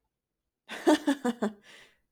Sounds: Laughter